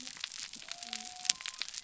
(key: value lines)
label: biophony
recorder: SoundTrap 300